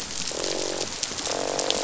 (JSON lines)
{"label": "biophony, croak", "recorder": "SoundTrap 500"}